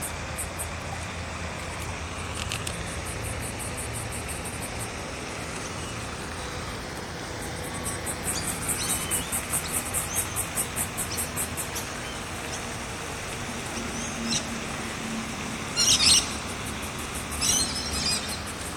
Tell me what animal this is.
Yoyetta celis, a cicada